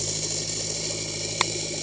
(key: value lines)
label: anthrophony, boat engine
recorder: HydroMoth